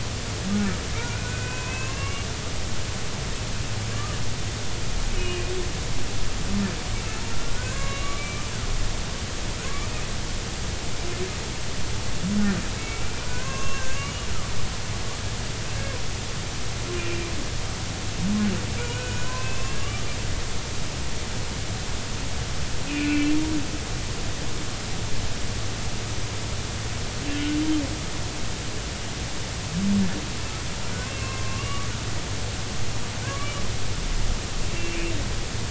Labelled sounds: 0.5	2.3	humpback whale, 0.96 to 2.8 kHz
5.1	5.5	humpback whale, 2.4 to 2.9 kHz
6.9	7.2	humpback whale, 2.6 to 2.8 kHz
7.5	8.4	humpback whale, 0.99 to 7.2 kHz
12.8	14.3	humpback whale, 0.96 to 6.6 kHz
17.0	17.3	humpback whale, 2.3 to 2.5 kHz
18.8	20.0	humpback whale, 0.96 to 2.8 kHz
22.9	23.4	humpback whale, 2.3 to 2.8 kHz
27.3	27.6	humpback whale, 1.4 to 1.6 kHz
31.1	31.9	humpback whale, 1.0 to 2.9 kHz
33.2	33.5	humpback whale, 0.99 to 1.2 kHz

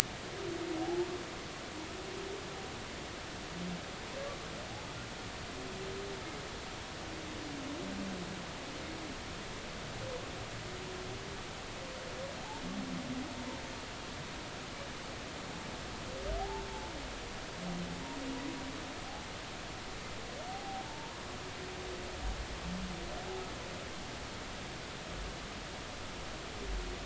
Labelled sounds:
0.8	1.1	humpback whale, 0.80 to 0.99 kHz
16.4	16.7	humpback whale, 0.80 to 1.0 kHz
20.5	21.1	humpback whale, 0.80 to 0.96 kHz

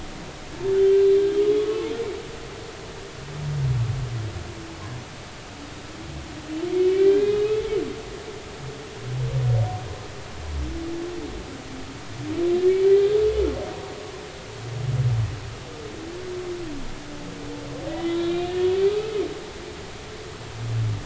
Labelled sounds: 1.6	1.9	humpback whale, 1.0 to 1.2 kHz
6.7	7.5	humpback whale, 1.5 to 3.8 kHz
17.9	18.5	humpback whale, 1.9 to 3.9 kHz

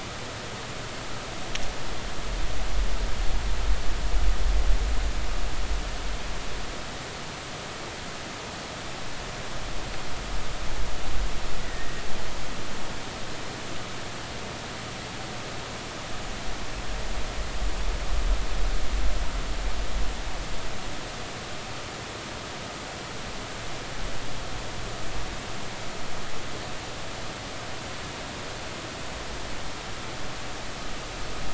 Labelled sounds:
11.6	12.0	humpback whale, 1.8 to 2.0 kHz

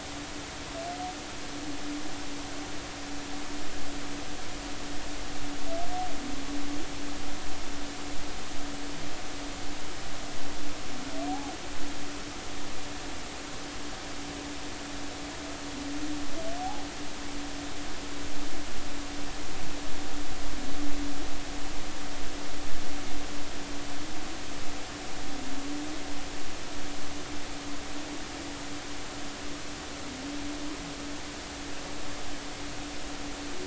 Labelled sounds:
11.3	11.5	humpback whale, 0.80 to 0.90 kHz
16.6	16.8	humpback whale, 0.80 to 0.90 kHz

